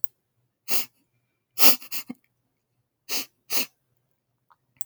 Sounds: Sniff